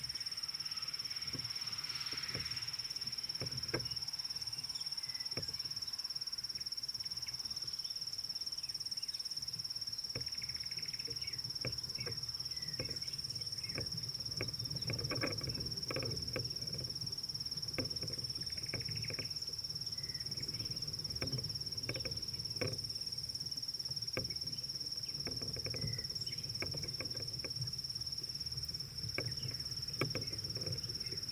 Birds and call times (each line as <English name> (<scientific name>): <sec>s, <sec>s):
African Bare-eyed Thrush (Turdus tephronotus): 25.9s